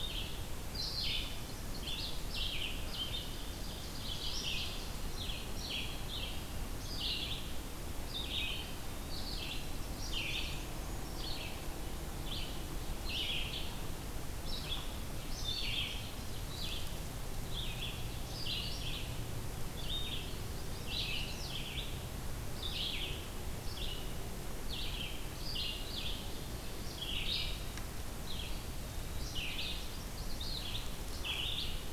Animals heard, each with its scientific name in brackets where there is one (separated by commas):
Chestnut-sided Warbler (Setophaga pensylvanica), Eastern Wood-Pewee (Contopus virens), Ovenbird (Seiurus aurocapilla), Red-eyed Vireo (Vireo olivaceus)